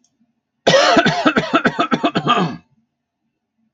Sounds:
Cough